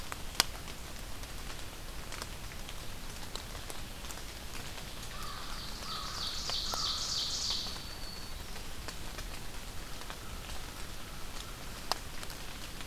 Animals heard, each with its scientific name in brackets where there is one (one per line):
Ovenbird (Seiurus aurocapilla)
American Crow (Corvus brachyrhynchos)
Black-throated Green Warbler (Setophaga virens)